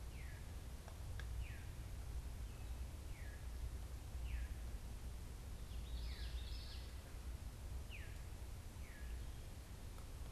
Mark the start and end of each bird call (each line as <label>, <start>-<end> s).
Veery (Catharus fuscescens), 0.0-10.3 s
Common Yellowthroat (Geothlypis trichas), 5.5-7.0 s